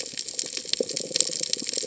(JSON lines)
{"label": "biophony", "recorder": "HydroMoth"}